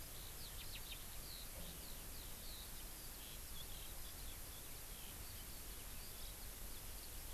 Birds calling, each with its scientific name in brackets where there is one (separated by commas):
Eurasian Skylark (Alauda arvensis)